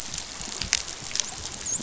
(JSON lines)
{"label": "biophony, dolphin", "recorder": "SoundTrap 500"}